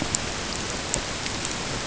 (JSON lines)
{"label": "ambient", "recorder": "HydroMoth"}